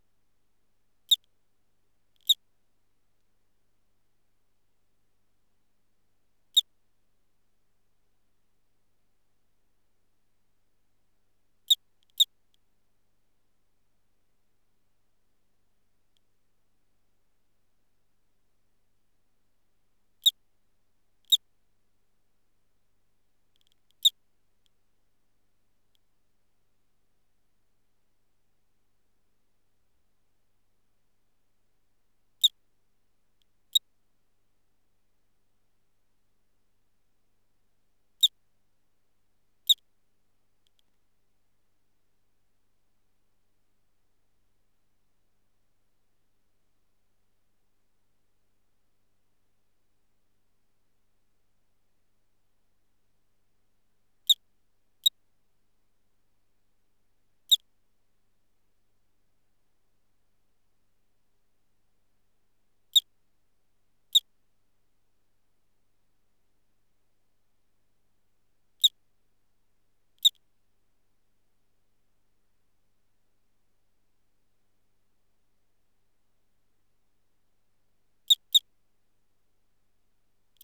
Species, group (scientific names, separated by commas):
Eugryllodes escalerae, Orthoptera